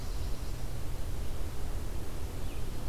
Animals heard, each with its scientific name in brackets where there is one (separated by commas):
Red-eyed Vireo (Vireo olivaceus), Nashville Warbler (Leiothlypis ruficapilla)